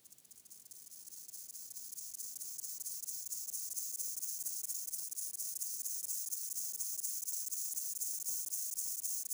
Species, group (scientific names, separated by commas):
Gomphocerippus rufus, Orthoptera